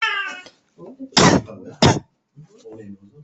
{"expert_labels": [{"quality": "good", "cough_type": "dry", "dyspnea": false, "wheezing": false, "stridor": false, "choking": false, "congestion": false, "nothing": true, "diagnosis": "upper respiratory tract infection", "severity": "mild"}], "gender": "female", "respiratory_condition": false, "fever_muscle_pain": false, "status": "COVID-19"}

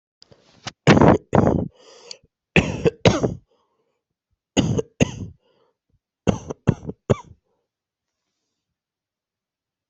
{"expert_labels": [{"quality": "good", "cough_type": "dry", "dyspnea": false, "wheezing": false, "stridor": false, "choking": false, "congestion": false, "nothing": true, "diagnosis": "upper respiratory tract infection", "severity": "mild"}], "age": 26, "gender": "male", "respiratory_condition": false, "fever_muscle_pain": false, "status": "COVID-19"}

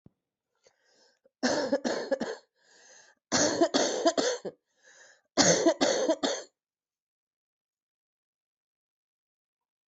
{"expert_labels": [{"quality": "good", "cough_type": "dry", "dyspnea": false, "wheezing": false, "stridor": false, "choking": false, "congestion": true, "nothing": false, "diagnosis": "upper respiratory tract infection", "severity": "mild"}], "gender": "female", "respiratory_condition": false, "fever_muscle_pain": false, "status": "COVID-19"}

